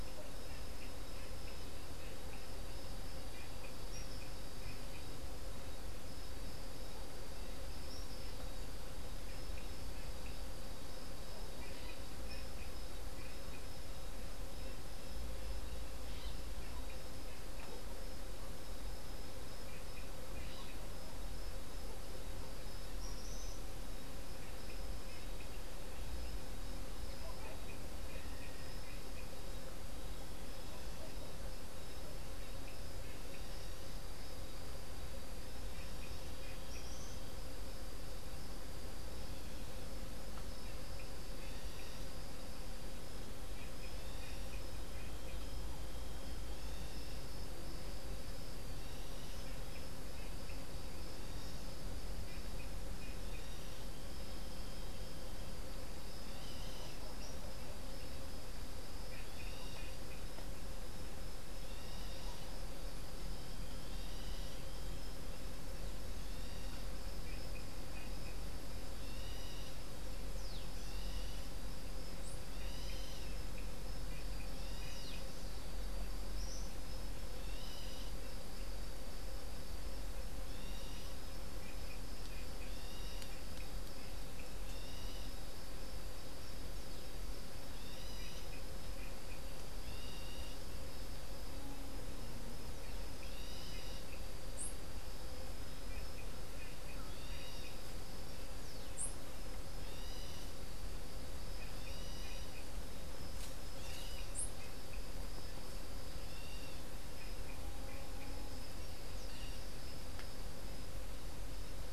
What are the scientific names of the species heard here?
Tyrannus melancholicus, unidentified bird